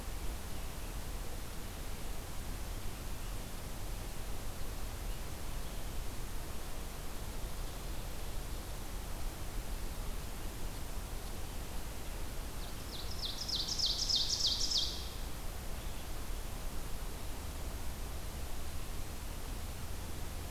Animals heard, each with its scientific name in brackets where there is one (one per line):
Ovenbird (Seiurus aurocapilla)